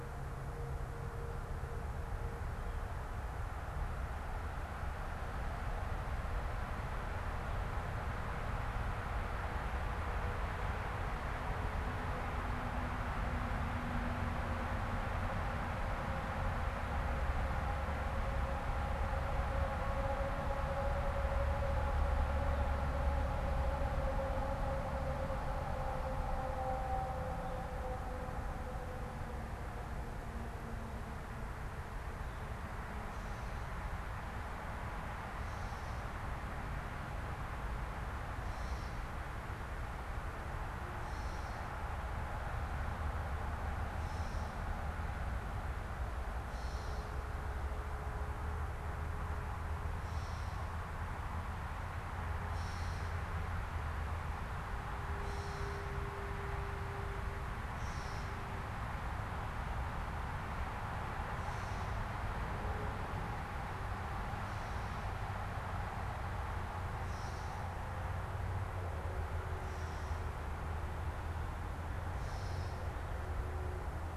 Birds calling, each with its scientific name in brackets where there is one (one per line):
Gray Catbird (Dumetella carolinensis)